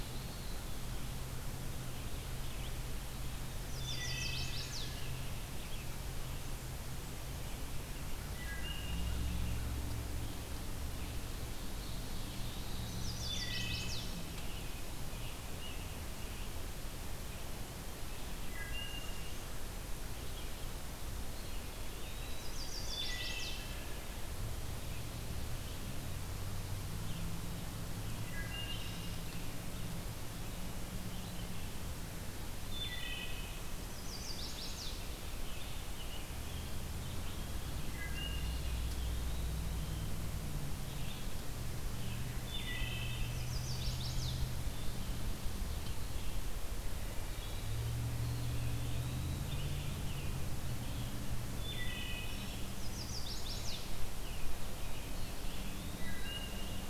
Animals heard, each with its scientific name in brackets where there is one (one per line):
Eastern Wood-Pewee (Contopus virens)
Chestnut-sided Warbler (Setophaga pensylvanica)
Red-eyed Vireo (Vireo olivaceus)
Ovenbird (Seiurus aurocapilla)
American Robin (Turdus migratorius)
Wood Thrush (Hylocichla mustelina)